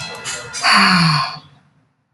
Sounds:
Sigh